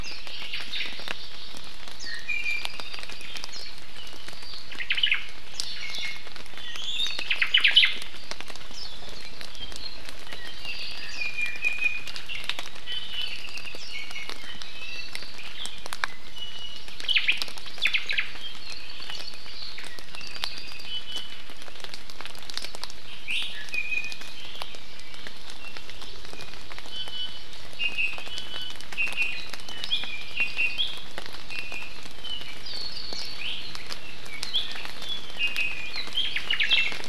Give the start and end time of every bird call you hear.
[0.00, 0.30] Warbling White-eye (Zosterops japonicus)
[0.10, 1.60] Hawaii Amakihi (Chlorodrepanis virens)
[0.30, 1.00] Omao (Myadestes obscurus)
[2.00, 2.20] Warbling White-eye (Zosterops japonicus)
[2.00, 2.70] Iiwi (Drepanis coccinea)
[2.40, 3.40] Apapane (Himatione sanguinea)
[3.50, 3.70] Warbling White-eye (Zosterops japonicus)
[4.70, 5.30] Omao (Myadestes obscurus)
[5.70, 7.30] Iiwi (Drepanis coccinea)
[7.30, 8.00] Omao (Myadestes obscurus)
[10.60, 11.40] Apapane (Himatione sanguinea)
[11.20, 12.10] Iiwi (Drepanis coccinea)
[12.80, 13.20] Iiwi (Drepanis coccinea)
[13.30, 13.80] Apapane (Himatione sanguinea)
[13.90, 14.30] Iiwi (Drepanis coccinea)
[14.60, 15.30] Iiwi (Drepanis coccinea)
[16.10, 16.80] Iiwi (Drepanis coccinea)
[17.10, 17.40] Omao (Myadestes obscurus)
[17.80, 18.30] Omao (Myadestes obscurus)
[18.60, 19.40] Apapane (Himatione sanguinea)
[20.10, 20.90] Apapane (Himatione sanguinea)
[20.80, 21.40] Iiwi (Drepanis coccinea)
[23.20, 24.30] Iiwi (Drepanis coccinea)
[26.90, 27.50] Iiwi (Drepanis coccinea)
[26.90, 27.90] Hawaii Amakihi (Chlorodrepanis virens)
[27.80, 29.60] Iiwi (Drepanis coccinea)
[29.90, 30.10] Iiwi (Drepanis coccinea)
[30.40, 30.80] Iiwi (Drepanis coccinea)
[31.50, 31.90] Iiwi (Drepanis coccinea)
[32.10, 33.40] Apapane (Himatione sanguinea)
[33.40, 33.60] Iiwi (Drepanis coccinea)
[34.00, 35.40] Apapane (Himatione sanguinea)
[35.40, 35.90] Iiwi (Drepanis coccinea)
[36.10, 37.00] Omao (Myadestes obscurus)
[36.60, 37.00] Iiwi (Drepanis coccinea)

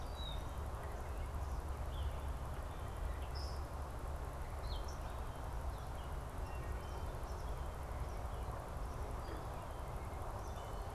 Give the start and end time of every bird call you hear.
[0.07, 0.68] Red-winged Blackbird (Agelaius phoeniceus)
[2.88, 5.17] Gray Catbird (Dumetella carolinensis)
[6.38, 7.17] Wood Thrush (Hylocichla mustelina)
[10.38, 10.78] Eastern Kingbird (Tyrannus tyrannus)

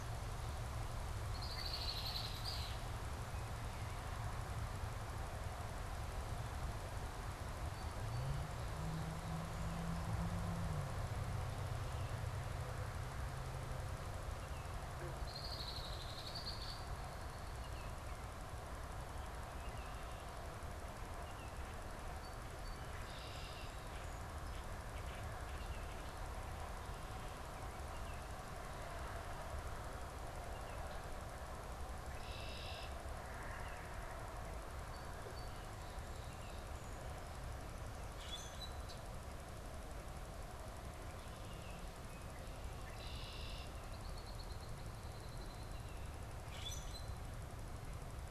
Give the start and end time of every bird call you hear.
[0.96, 3.06] Red-winged Blackbird (Agelaius phoeniceus)
[15.06, 17.96] Red-winged Blackbird (Agelaius phoeniceus)
[22.96, 23.86] Red-winged Blackbird (Agelaius phoeniceus)
[25.46, 31.06] Baltimore Oriole (Icterus galbula)
[31.76, 33.06] Red-winged Blackbird (Agelaius phoeniceus)
[38.06, 38.96] Common Grackle (Quiscalus quiscula)
[42.66, 46.16] Red-winged Blackbird (Agelaius phoeniceus)
[46.36, 47.26] Common Grackle (Quiscalus quiscula)

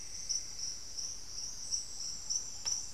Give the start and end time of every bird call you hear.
[0.00, 0.93] Cinnamon-throated Woodcreeper (Dendrexetastes rufigula)
[0.00, 2.93] Ruddy Pigeon (Patagioenas subvinacea)
[1.13, 2.93] Thrush-like Wren (Campylorhynchus turdinus)

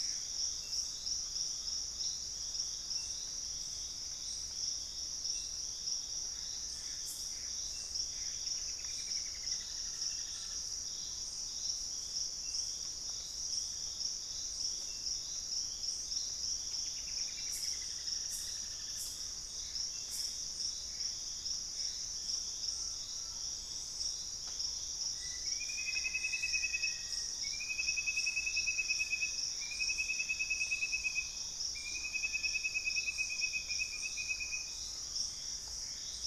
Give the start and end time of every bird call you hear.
[0.00, 0.65] Gray Antbird (Cercomacra cinerascens)
[0.00, 2.45] Collared Trogon (Trogon collaris)
[0.00, 3.55] Purple-throated Fruitcrow (Querula purpurata)
[6.15, 8.55] Gray Antbird (Cercomacra cinerascens)
[8.25, 11.05] Straight-billed Woodcreeper (Dendroplex picus)
[9.15, 10.75] Collared Trogon (Trogon collaris)
[16.45, 19.15] Straight-billed Woodcreeper (Dendroplex picus)
[18.95, 22.05] Gray Antbird (Cercomacra cinerascens)
[21.95, 36.26] Purple-throated Fruitcrow (Querula purpurata)
[22.05, 23.65] Collared Trogon (Trogon collaris)
[25.15, 27.55] Black-faced Antthrush (Formicarius analis)
[35.05, 36.26] Gray Antbird (Cercomacra cinerascens)

